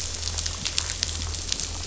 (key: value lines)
label: anthrophony, boat engine
recorder: SoundTrap 500